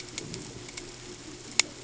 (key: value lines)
label: ambient
recorder: HydroMoth